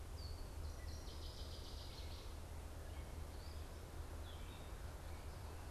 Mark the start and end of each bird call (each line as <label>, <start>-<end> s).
Gray Catbird (Dumetella carolinensis), 0.0-5.7 s
Northern Waterthrush (Parkesia noveboracensis), 0.6-2.3 s